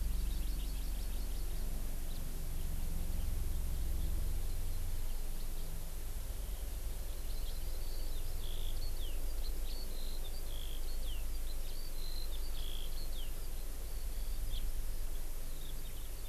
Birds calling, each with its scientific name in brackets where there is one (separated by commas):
House Finch (Haemorhous mexicanus), Eurasian Skylark (Alauda arvensis), Hawaii Amakihi (Chlorodrepanis virens)